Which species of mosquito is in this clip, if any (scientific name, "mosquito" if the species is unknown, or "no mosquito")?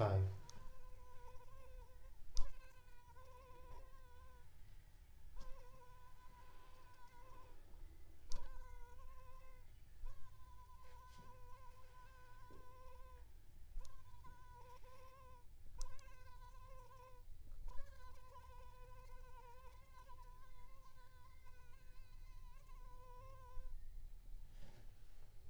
Anopheles arabiensis